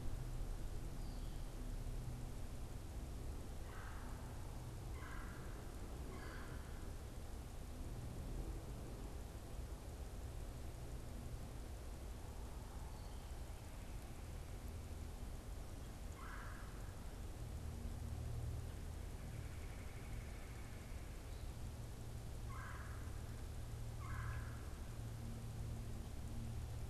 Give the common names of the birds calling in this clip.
unidentified bird, Red-bellied Woodpecker